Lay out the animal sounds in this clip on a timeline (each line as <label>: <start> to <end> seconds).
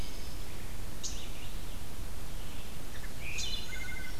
Red-eyed Vireo (Vireo olivaceus): 0.0 to 2.8 seconds
unidentified call: 0.9 to 1.2 seconds
Wood Thrush (Hylocichla mustelina): 3.1 to 4.2 seconds
unidentified call: 3.2 to 3.5 seconds